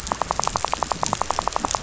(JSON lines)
{"label": "biophony, rattle", "recorder": "SoundTrap 500"}